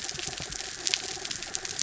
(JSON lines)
{"label": "anthrophony, mechanical", "recorder": "SoundTrap 300"}